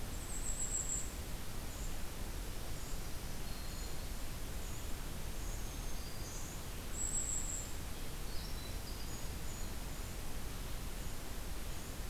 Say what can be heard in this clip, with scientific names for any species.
Regulus satrapa, Setophaga virens, Troglodytes hiemalis